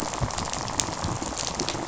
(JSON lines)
{"label": "biophony, rattle", "recorder": "SoundTrap 500"}